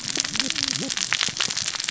{"label": "biophony, cascading saw", "recorder": "SoundTrap 600 or HydroMoth"}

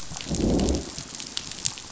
{"label": "biophony, growl", "recorder": "SoundTrap 500"}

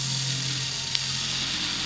{"label": "anthrophony, boat engine", "recorder": "SoundTrap 500"}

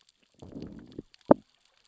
{"label": "biophony, growl", "recorder": "SoundTrap 600 or HydroMoth"}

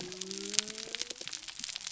{"label": "biophony", "recorder": "SoundTrap 300"}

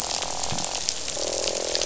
{"label": "biophony, croak", "recorder": "SoundTrap 500"}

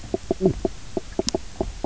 {"label": "biophony, knock croak", "recorder": "SoundTrap 300"}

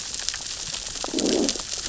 {"label": "biophony, growl", "recorder": "SoundTrap 600 or HydroMoth"}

